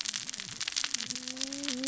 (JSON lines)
{"label": "biophony, cascading saw", "recorder": "SoundTrap 600 or HydroMoth"}